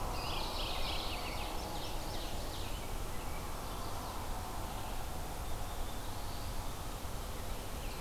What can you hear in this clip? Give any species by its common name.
Eastern Wood-Pewee, Mourning Warbler, Ovenbird, Black-throated Blue Warbler